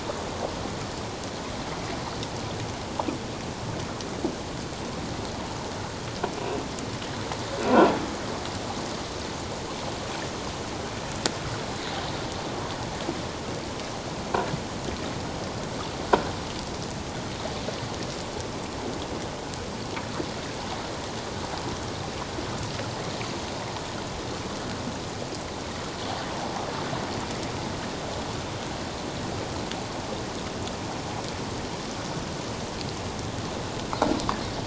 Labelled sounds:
7.6	7.9	croaking sound likely from a nearby submerged object, 1.3 to 1.5 kHz

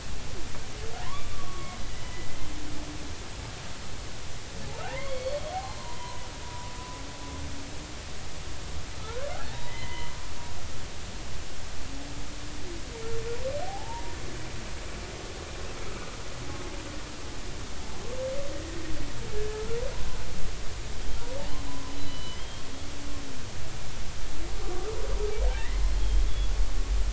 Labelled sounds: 1.0	1.8	humpback whale, 0.90 to 3.6 kHz
2.0	2.3	humpback whale, 1.9 to 2.0 kHz
4.8	6.7	humpback whale, 0.80 to 4.6 kHz
9.0	10.1	humpback whale, 0.80 to 2.1 kHz
13.6	14.2	humpback whale, 0.80 to 0.99 kHz
15.9	16.1	humpback whale, 1.2 to 1.3 kHz
19.4	19.8	humpback whale, 1.2 to 1.8 kHz
21.7	22.7	humpback whale, 0.96 to 4.0 kHz
25.6	26.2	humpback whale, 1.7 to 3.4 kHz

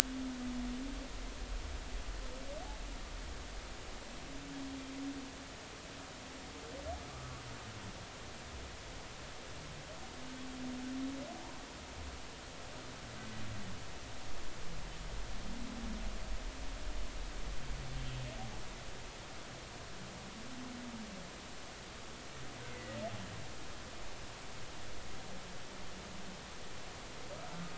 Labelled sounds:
11.4	11.7	humpback whale, 0.83 to 1.2 kHz
22.6	23.0	humpback whale, 1.9 to 2.1 kHz

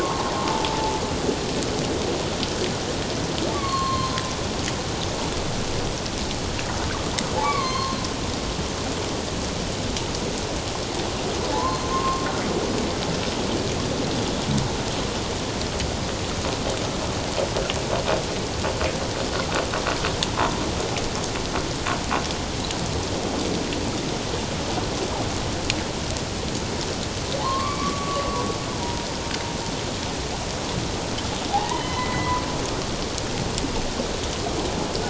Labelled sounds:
0.0	1.0	humpback whale, 0.81 to 1.2 kHz
3.5	4.2	humpback whale, 1.0 to 4.6 kHz
7.4	8.0	humpback whale, 0.97 to 4.5 kHz
11.5	12.2	humpback whale, 0.81 to 6.4 kHz
27.4	28.3	humpback whale, 0.81 to 1.2 kHz
28.8	29.1	humpback whale, 0.91 to 1.0 kHz
31.5	32.4	humpback whale, 0.78 to 3.1 kHz

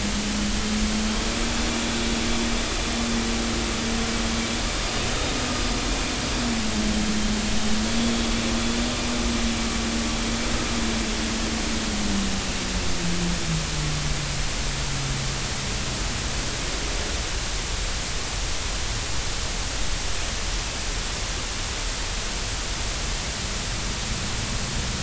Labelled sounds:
1.7	2.0	vessel noise, 3.4 to 3.5 kHz

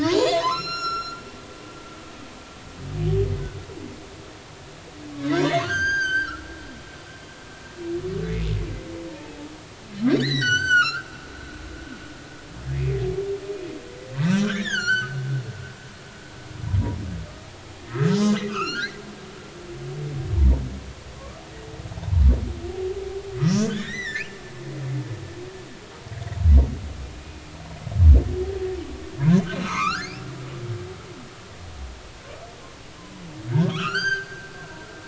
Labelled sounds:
0.0	2.2	humpback whale, 0.80 to 8.0 kHz
5.6	6.5	humpback whale, 1.2 to 8.0 kHz
9.1	9.5	humpback whale, 0.80 to 2.6 kHz
10.2	11.0	humpback whale, 1.2 to 8.0 kHz
12.7	13.0	humpback whale, 2.0 to 2.6 kHz
14.1	15.2	humpback whale, 1.1 to 7.2 kHz
17.8	19.0	humpback whale, 1.0 to 7.2 kHz
21.2	22.2	humpback whale, 0.80 to 1.2 kHz
23.4	24.4	humpback whale, 1.4 to 6.1 kHz
27.2	27.5	humpback whale, 2.3 to 2.6 kHz
29.5	30.3	humpback whale, 0.90 to 5.4 kHz
33.5	34.5	humpback whale, 0.86 to 8.0 kHz

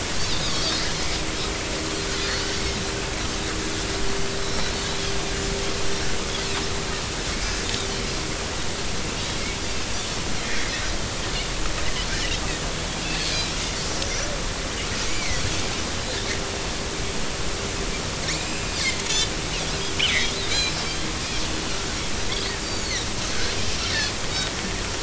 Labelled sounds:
0.4	0.8	Pacific white-sided dolphin, 3.2 to 5.2 kHz
4.4	5.0	Pacific white-sided dolphin, 3.7 to 4.2 kHz
13.0	14.3	Pacific white-sided dolphin, 2.5 to 6.3 kHz
15.1	15.4	Pacific white-sided dolphin, 1.9 to 2.4 kHz
18.3	19.0	Pacific white-sided dolphin, 2.0 to 7.5 kHz
20.1	20.7	Pacific white-sided dolphin, 1.8 to 4.2 kHz
22.6	23.1	Pacific white-sided dolphin, 3.6 to 4.8 kHz
23.9	24.2	Pacific white-sided dolphin, 5.0 to 5.3 kHz

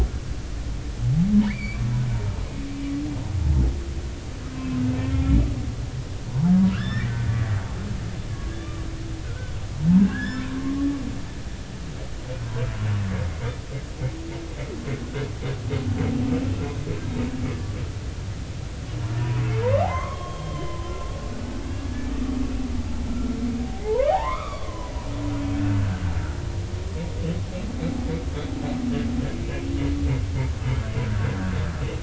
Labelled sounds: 1.4	1.8	humpback whale, 1.7 to 4.7 kHz
5.1	5.4	humpback whale, 2.1 to 2.3 kHz
6.3	7.1	humpback whale, 0.80 to 5.4 kHz
7.7	8.9	humpback whale, 1.1 to 2.0 kHz
9.2	10.5	humpback whale, 1.3 to 5.4 kHz
19.6	20.9	humpback whale, 0.80 to 3.4 kHz
21.8	22.3	humpback whale, 1.1 to 1.8 kHz
23.1	24.9	humpback whale, 0.80 to 3.8 kHz
25.5	26.0	humpback whale, 1.3 to 1.7 kHz

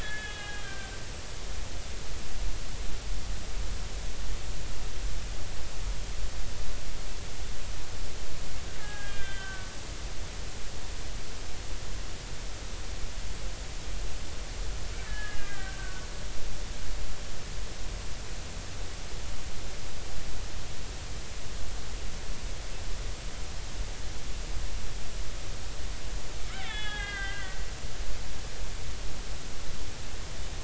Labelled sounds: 0.0	1.0	killer whale, Bigg's (transient), 1.5 to 3.5 kHz
8.8	9.7	killer whale, Bigg's (transient), 0.80 to 3.6 kHz
15.1	16.1	killer whale, Bigg's (transient), 1.4 to 2.0 kHz
26.5	27.7	killer whale, Bigg's (transient), 0.80 to 3.8 kHz

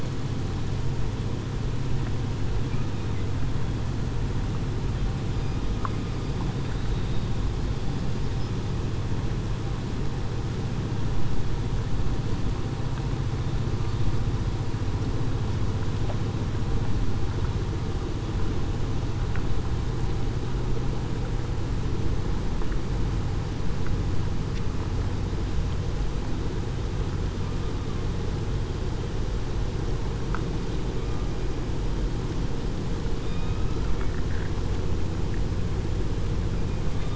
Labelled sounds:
33.3	33.6	killer whale, southern resident, 2.4 to 2.6 kHz

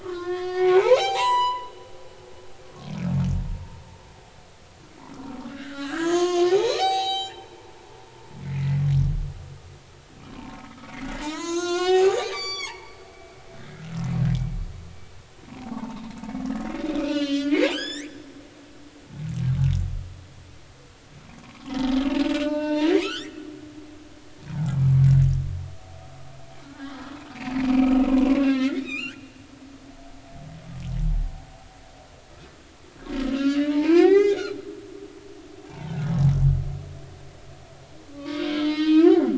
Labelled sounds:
0.0	1.7	humpback whale, 0.80 to 8.0 kHz
5.5	7.7	humpback whale, 0.80 to 8.0 kHz
8.4	8.8	humpback whale, 1.8 to 2.3 kHz
10.8	13.9	humpback whale, 0.80 to 8.0 kHz
15.7	16.0	humpback whale, 0.83 to 1.2 kHz
17.0	18.1	humpback whale, 1.4 to 7.5 kHz
21.4	22.0	humpback whale, 0.80 to 1.2 kHz
22.3	23.3	humpback whale, 0.83 to 5.2 kHz
24.0	24.8	humpback whale, 0.80 to 2.3 kHz
27.3	29.2	humpback whale, 0.96 to 4.8 kHz
33.3	34.5	humpback whale, 0.80 to 3.8 kHz
35.6	36.0	humpback whale, 0.80 to 1.1 kHz
38.1	39.3	humpback whale, 0.86 to 5.2 kHz

